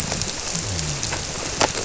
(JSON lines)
{"label": "biophony", "recorder": "SoundTrap 300"}